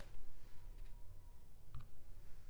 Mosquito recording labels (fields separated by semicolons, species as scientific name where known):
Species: Culex pipiens complex; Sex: female; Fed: unfed; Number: one; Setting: cup